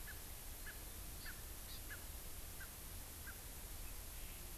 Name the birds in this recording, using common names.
Erckel's Francolin, Hawaii Amakihi